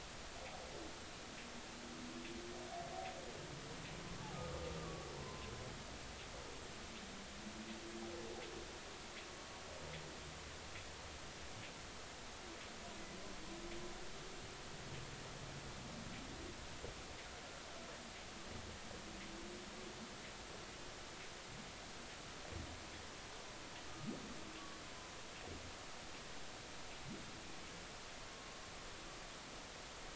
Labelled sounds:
4.8	5.5	humpback whale, 0.90 to 1.2 kHz

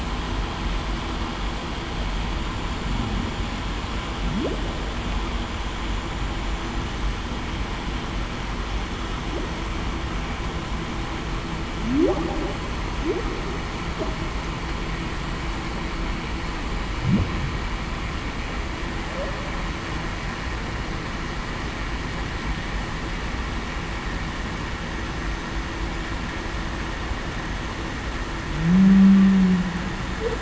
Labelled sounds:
28.6	29.6	humpback whale, 0.19 to 0.23 kHz

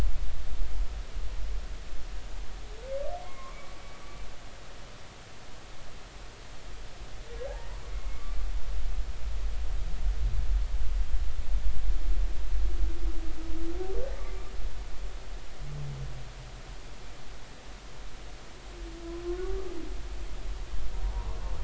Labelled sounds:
3.2	3.7	humpback whale, 0.99 to 2.2 kHz
21.0	21.3	humpback whale, 0.83 to 1.1 kHz

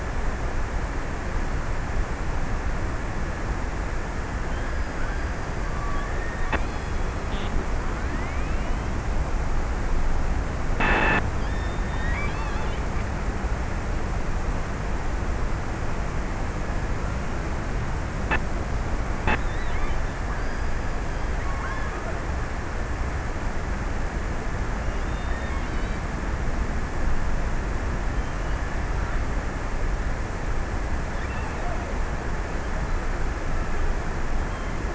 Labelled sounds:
11.4	13.8	killer whale, offshore, 0.97 to 4.6 kHz
24.5	26.9	killer whale, offshore, 1.7 to 4.0 kHz
30.9	32.4	killer whale, offshore, 1.7 to 3.5 kHz

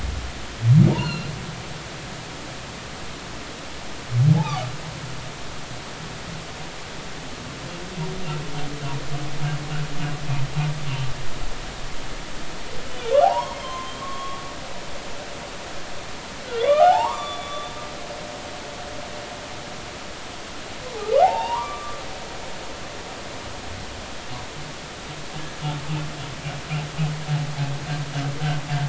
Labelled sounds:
0.9	1.3	humpback whale, 2.6 to 4.4 kHz
4.4	4.7	humpback whale, 0.80 to 2.6 kHz
13.2	14.4	humpback whale, 0.80 to 6.6 kHz
16.5	17.7	humpback whale, 0.80 to 7.2 kHz
21.0	22.0	humpback whale, 0.80 to 2.9 kHz

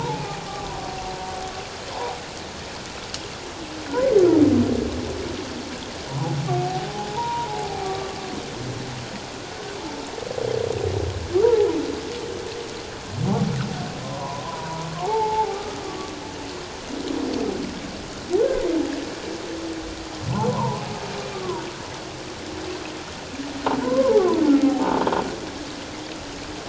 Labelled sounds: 3.9	4.1	humpback whale, 1.4 to 1.7 kHz
6.1	8.1	humpback whale, 0.78 to 1.2 kHz
11.3	11.7	humpback whale, 0.78 to 1.6 kHz
14.0	15.8	humpback whale, 0.78 to 1.3 kHz
20.5	21.6	humpback whale, 0.81 to 1.2 kHz
23.8	25.1	humpback whale, 0.78 to 1.2 kHz

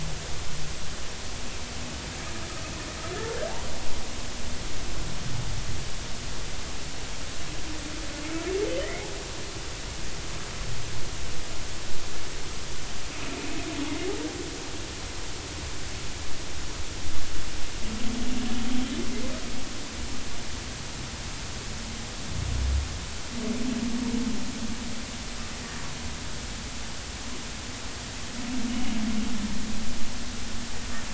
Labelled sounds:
8.8	9.1	humpback whale, 1.8 to 2.2 kHz
13.1	13.3	humpback whale, 2.4 to 2.6 kHz

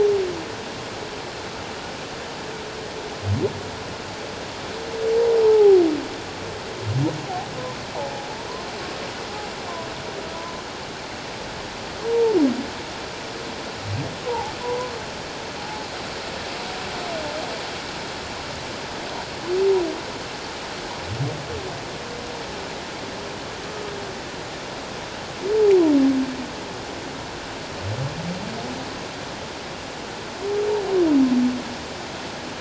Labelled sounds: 5.4	5.8	humpback whale, 0.78 to 1.1 kHz
10.3	10.6	humpback whale, 0.97 to 1.1 kHz
12.0	12.4	humpback whale, 0.84 to 0.97 kHz
14.2	14.9	humpback whale, 0.78 to 1.1 kHz
15.6	15.8	humpback whale, 0.78 to 0.91 kHz

